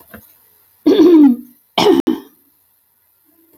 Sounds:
Throat clearing